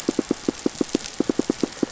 {"label": "biophony, pulse", "recorder": "SoundTrap 500"}
{"label": "anthrophony, boat engine", "recorder": "SoundTrap 500"}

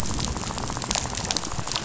{"label": "biophony, rattle", "recorder": "SoundTrap 500"}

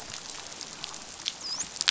{"label": "biophony, dolphin", "recorder": "SoundTrap 500"}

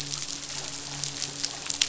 {"label": "biophony, midshipman", "recorder": "SoundTrap 500"}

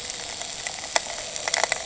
{"label": "anthrophony, boat engine", "recorder": "HydroMoth"}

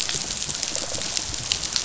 {"label": "biophony, rattle response", "recorder": "SoundTrap 500"}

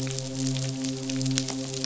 {"label": "biophony, midshipman", "recorder": "SoundTrap 500"}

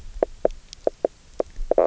{"label": "biophony, knock croak", "recorder": "SoundTrap 300"}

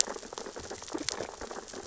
{"label": "biophony, sea urchins (Echinidae)", "recorder": "SoundTrap 600 or HydroMoth"}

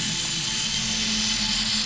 {"label": "anthrophony, boat engine", "recorder": "SoundTrap 500"}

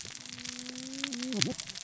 {"label": "biophony, cascading saw", "recorder": "SoundTrap 600 or HydroMoth"}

